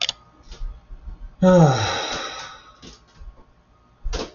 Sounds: Sigh